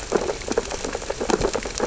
{"label": "biophony, sea urchins (Echinidae)", "recorder": "SoundTrap 600 or HydroMoth"}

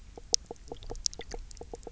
{"label": "biophony, knock croak", "recorder": "SoundTrap 300"}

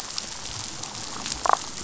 {"label": "biophony, damselfish", "recorder": "SoundTrap 500"}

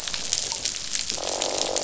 {"label": "biophony, croak", "recorder": "SoundTrap 500"}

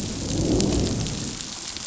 {"label": "biophony, growl", "recorder": "SoundTrap 500"}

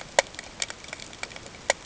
{"label": "ambient", "recorder": "HydroMoth"}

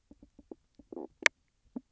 {"label": "biophony, knock croak", "recorder": "SoundTrap 300"}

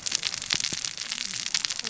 {"label": "biophony, cascading saw", "recorder": "SoundTrap 600 or HydroMoth"}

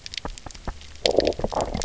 {"label": "biophony, low growl", "recorder": "SoundTrap 300"}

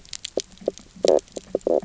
{"label": "biophony, knock croak", "recorder": "SoundTrap 300"}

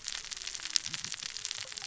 {"label": "biophony, cascading saw", "recorder": "SoundTrap 600 or HydroMoth"}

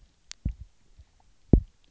{"label": "biophony, double pulse", "recorder": "SoundTrap 300"}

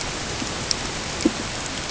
{"label": "ambient", "recorder": "HydroMoth"}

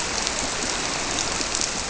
{"label": "biophony", "recorder": "SoundTrap 300"}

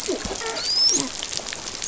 {"label": "biophony, dolphin", "recorder": "SoundTrap 500"}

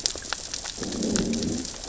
{"label": "biophony, growl", "recorder": "SoundTrap 600 or HydroMoth"}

